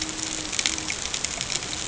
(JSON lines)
{"label": "ambient", "recorder": "HydroMoth"}